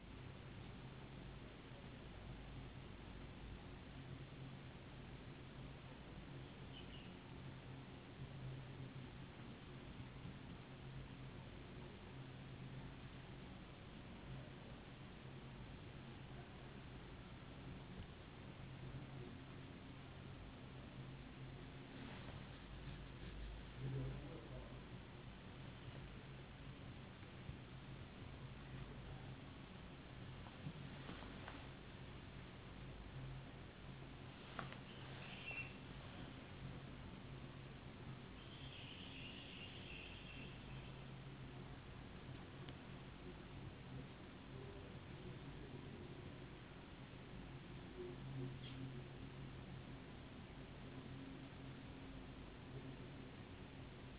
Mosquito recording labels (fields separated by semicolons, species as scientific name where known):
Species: no mosquito; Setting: insect culture